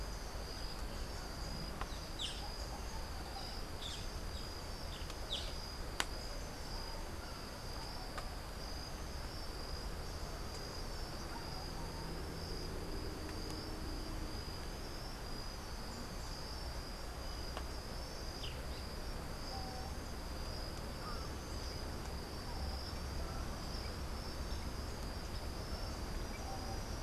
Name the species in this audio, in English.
Boat-billed Flycatcher